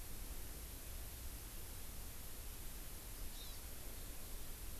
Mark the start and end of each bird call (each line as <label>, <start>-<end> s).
Hawaii Amakihi (Chlorodrepanis virens), 3.3-3.6 s